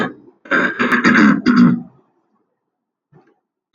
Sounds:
Throat clearing